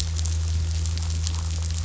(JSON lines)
{"label": "anthrophony, boat engine", "recorder": "SoundTrap 500"}